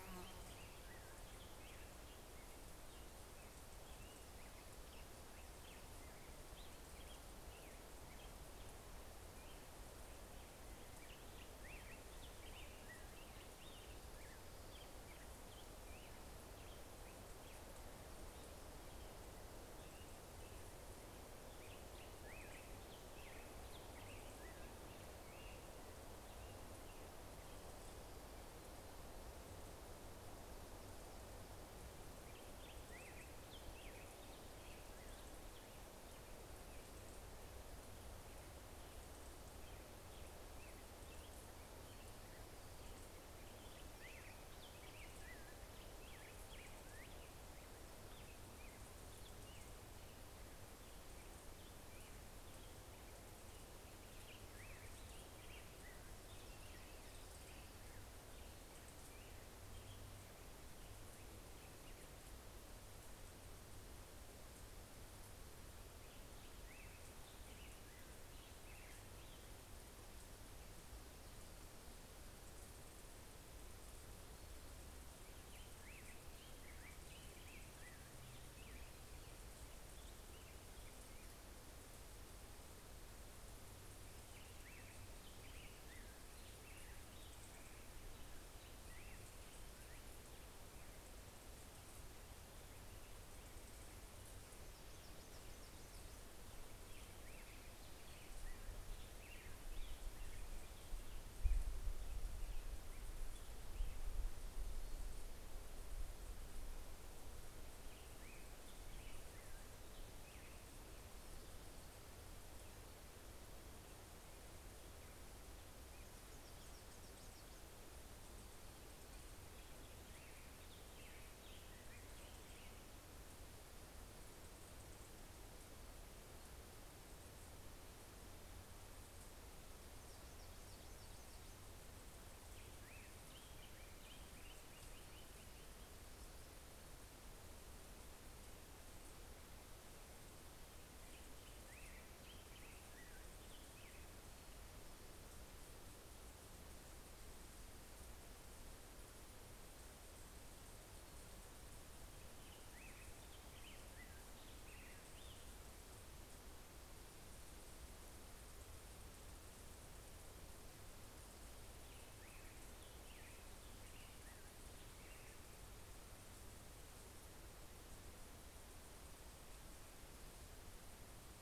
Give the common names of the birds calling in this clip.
Black-headed Grosbeak, Yellow-rumped Warbler, Hermit Warbler